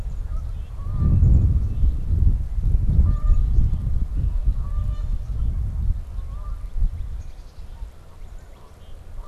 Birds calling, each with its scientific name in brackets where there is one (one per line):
Canada Goose (Branta canadensis)
Northern Cardinal (Cardinalis cardinalis)
Black-capped Chickadee (Poecile atricapillus)